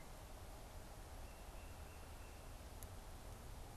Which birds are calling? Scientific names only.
Baeolophus bicolor